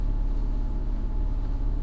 {"label": "anthrophony, boat engine", "recorder": "SoundTrap 300"}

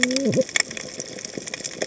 {"label": "biophony, cascading saw", "recorder": "HydroMoth"}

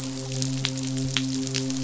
{"label": "biophony, midshipman", "recorder": "SoundTrap 500"}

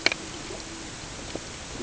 {"label": "ambient", "recorder": "HydroMoth"}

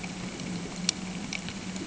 {"label": "anthrophony, boat engine", "recorder": "HydroMoth"}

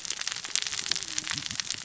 {"label": "biophony, cascading saw", "recorder": "SoundTrap 600 or HydroMoth"}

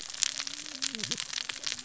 {"label": "biophony, cascading saw", "recorder": "SoundTrap 600 or HydroMoth"}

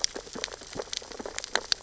{"label": "biophony, sea urchins (Echinidae)", "recorder": "SoundTrap 600 or HydroMoth"}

